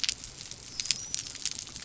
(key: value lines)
label: biophony
recorder: SoundTrap 300